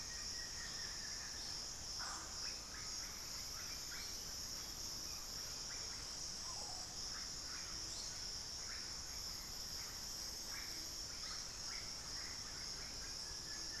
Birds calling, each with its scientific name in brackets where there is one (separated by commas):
Undulated Tinamou (Crypturellus undulatus), unidentified bird, Buff-throated Woodcreeper (Xiphorhynchus guttatus), Russet-backed Oropendola (Psarocolius angustifrons)